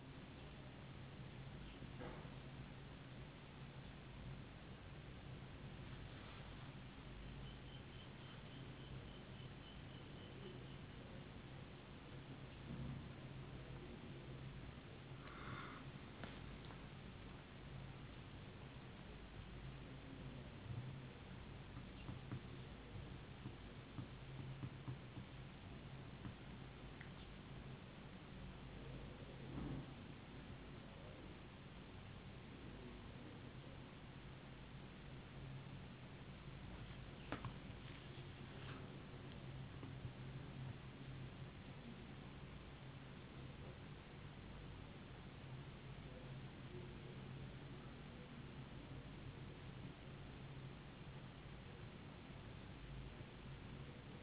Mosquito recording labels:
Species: no mosquito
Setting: insect culture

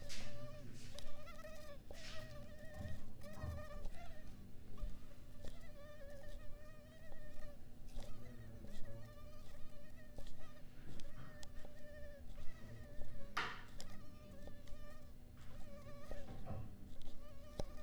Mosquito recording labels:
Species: Culex pipiens complex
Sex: female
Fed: unfed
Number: one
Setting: cup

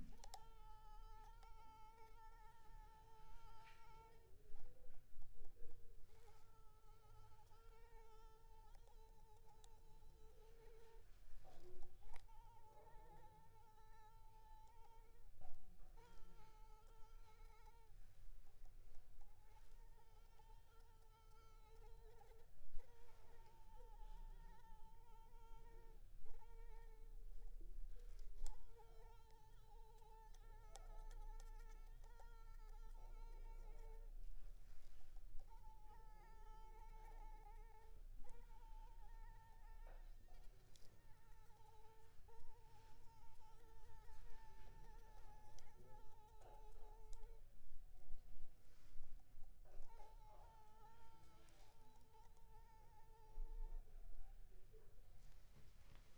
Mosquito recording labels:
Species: Anopheles arabiensis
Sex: female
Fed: unfed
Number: one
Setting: cup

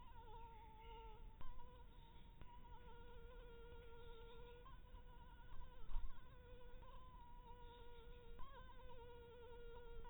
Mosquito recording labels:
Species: Anopheles harrisoni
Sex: female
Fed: blood-fed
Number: one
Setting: cup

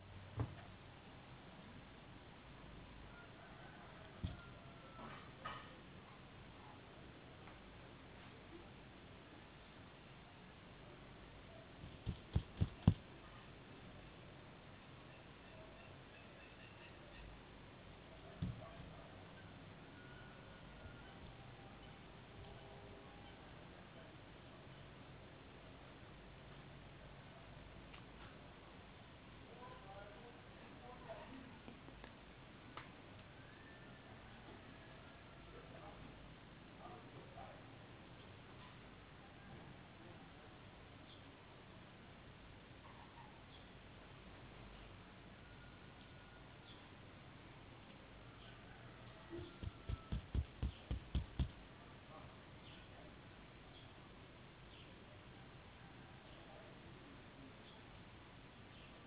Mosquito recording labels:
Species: no mosquito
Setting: insect culture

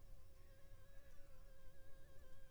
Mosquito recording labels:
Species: Anopheles funestus s.s.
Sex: female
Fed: unfed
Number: one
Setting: cup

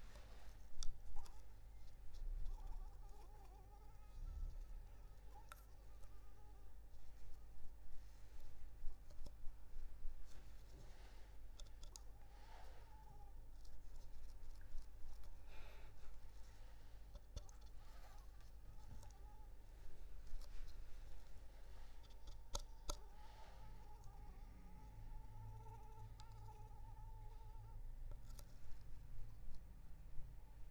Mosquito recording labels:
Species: Anopheles arabiensis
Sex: female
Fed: unfed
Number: one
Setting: cup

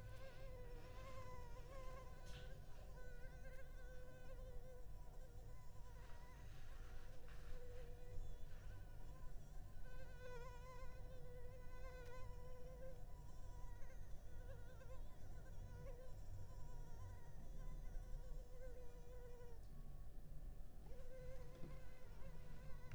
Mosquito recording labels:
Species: Culex pipiens complex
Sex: female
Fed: unfed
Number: one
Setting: cup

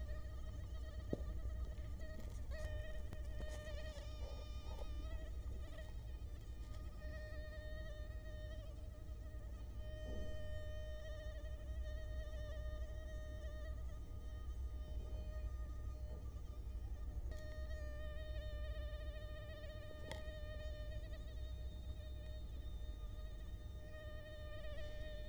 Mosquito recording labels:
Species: Culex quinquefasciatus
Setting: cup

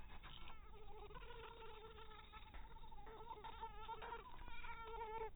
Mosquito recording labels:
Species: mosquito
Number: one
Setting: cup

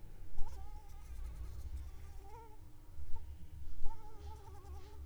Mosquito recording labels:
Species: Anopheles arabiensis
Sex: female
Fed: unfed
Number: one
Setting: cup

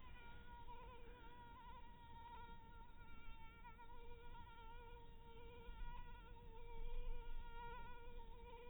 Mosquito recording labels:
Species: mosquito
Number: one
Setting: cup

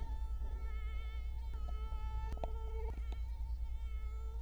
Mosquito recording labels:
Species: Culex quinquefasciatus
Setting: cup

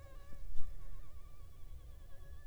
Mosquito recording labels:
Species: Anopheles funestus s.s.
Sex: female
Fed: unfed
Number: one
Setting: cup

